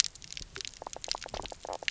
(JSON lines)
{"label": "biophony, knock croak", "recorder": "SoundTrap 300"}